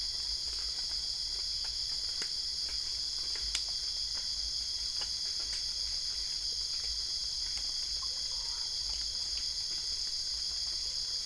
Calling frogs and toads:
none
Cerrado, 12:30am

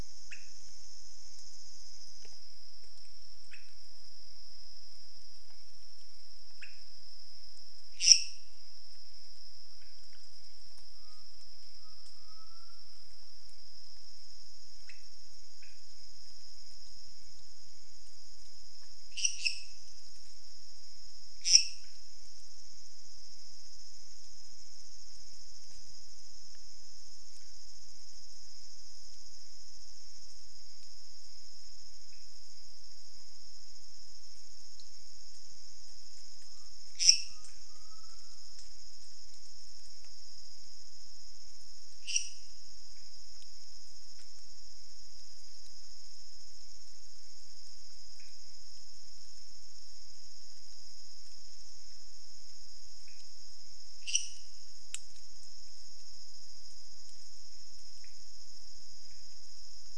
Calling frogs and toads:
pointedbelly frog (Leptodactylus podicipinus), lesser tree frog (Dendropsophus minutus)
Cerrado, ~3am

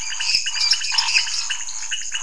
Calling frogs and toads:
lesser tree frog (Dendropsophus minutus), dwarf tree frog (Dendropsophus nanus), pointedbelly frog (Leptodactylus podicipinus), Scinax fuscovarius
Cerrado, 10pm

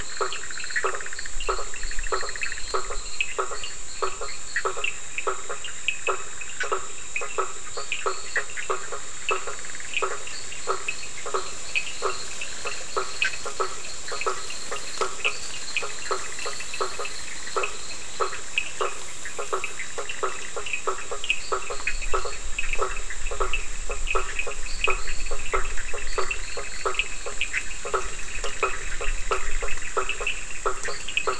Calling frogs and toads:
fine-lined tree frog (Boana leptolineata), Bischoff's tree frog (Boana bischoffi), blacksmith tree frog (Boana faber), Cochran's lime tree frog (Sphaenorhynchus surdus)
Atlantic Forest, 11pm

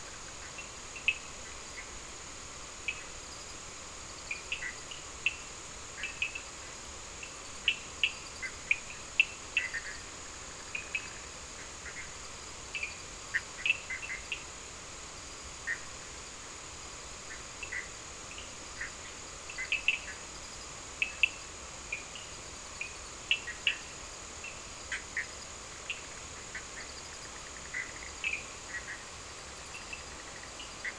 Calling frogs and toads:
Cochran's lime tree frog (Sphaenorhynchus surdus), Bischoff's tree frog (Boana bischoffi)
Atlantic Forest, ~4am

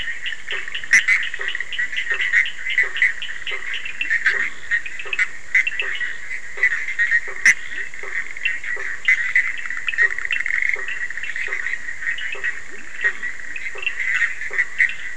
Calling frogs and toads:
Cochran's lime tree frog (Sphaenorhynchus surdus), Bischoff's tree frog (Boana bischoffi), blacksmith tree frog (Boana faber), Leptodactylus latrans
Atlantic Forest, midnight

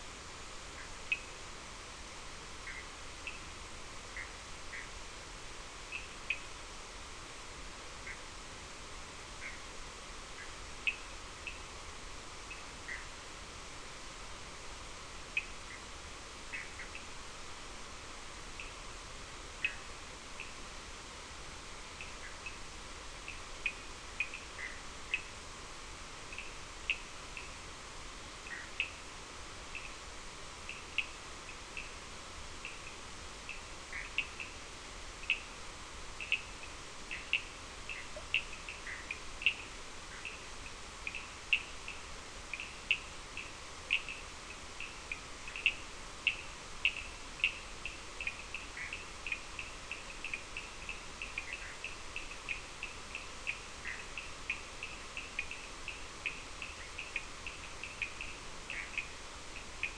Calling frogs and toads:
Cochran's lime tree frog (Sphaenorhynchus surdus), Bischoff's tree frog (Boana bischoffi)
Atlantic Forest, ~3am

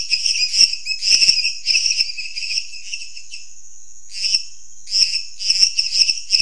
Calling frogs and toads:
lesser tree frog (Dendropsophus minutus)
Cerrado, 10pm

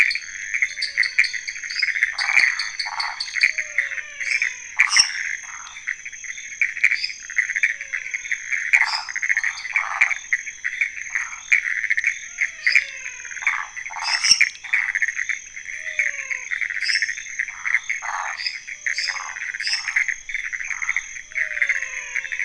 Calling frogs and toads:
dwarf tree frog (Dendropsophus nanus), Pithecopus azureus, menwig frog (Physalaemus albonotatus), waxy monkey tree frog (Phyllomedusa sauvagii), lesser tree frog (Dendropsophus minutus)
Cerrado, midnight

